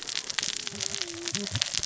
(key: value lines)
label: biophony, cascading saw
recorder: SoundTrap 600 or HydroMoth